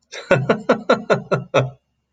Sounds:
Laughter